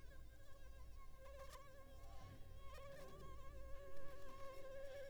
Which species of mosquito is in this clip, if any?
Anopheles arabiensis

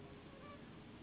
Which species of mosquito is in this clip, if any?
Anopheles gambiae s.s.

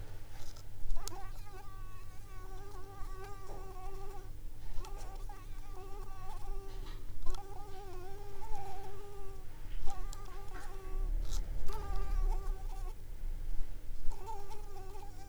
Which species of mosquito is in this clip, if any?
Anopheles coustani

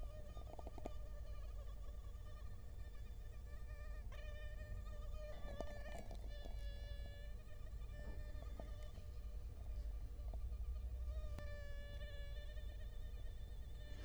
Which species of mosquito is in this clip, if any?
Culex quinquefasciatus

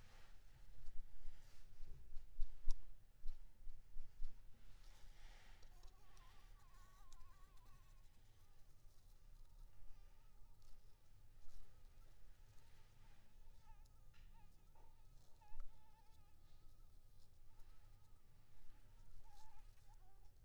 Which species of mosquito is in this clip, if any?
Anopheles maculipalpis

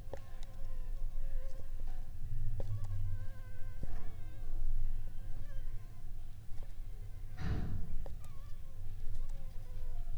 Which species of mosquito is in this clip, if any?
Anopheles funestus s.s.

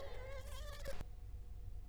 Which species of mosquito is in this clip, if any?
Culex quinquefasciatus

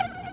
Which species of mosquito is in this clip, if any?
Aedes aegypti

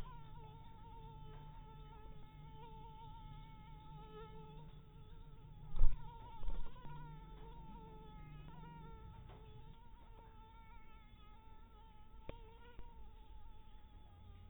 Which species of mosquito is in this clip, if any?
mosquito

